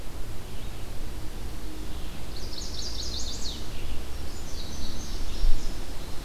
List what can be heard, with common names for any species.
Chestnut-sided Warbler, Indigo Bunting